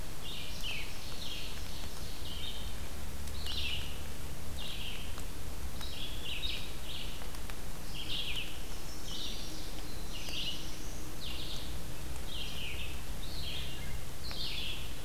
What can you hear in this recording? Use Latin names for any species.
Vireo olivaceus, Seiurus aurocapilla, Setophaga pensylvanica, Setophaga caerulescens, Hylocichla mustelina